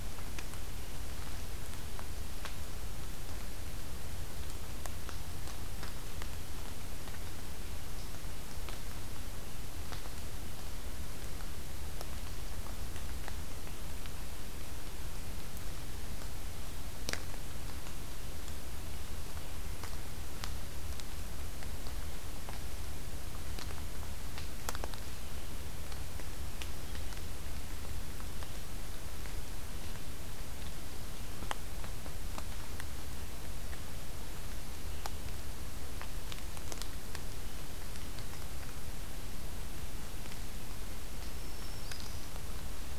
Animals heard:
Black-throated Green Warbler (Setophaga virens)

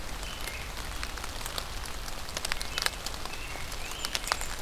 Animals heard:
Great Crested Flycatcher (Myiarchus crinitus)
American Robin (Turdus migratorius)
Blackburnian Warbler (Setophaga fusca)

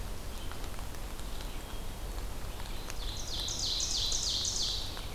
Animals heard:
Ovenbird (Seiurus aurocapilla)
Hermit Thrush (Catharus guttatus)
Red-eyed Vireo (Vireo olivaceus)

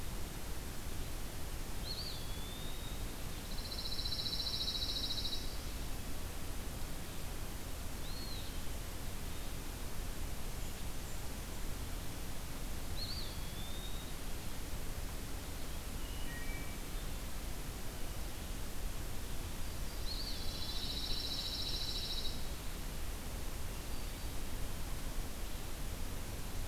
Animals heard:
Eastern Wood-Pewee (Contopus virens)
Pine Warbler (Setophaga pinus)
Wood Thrush (Hylocichla mustelina)

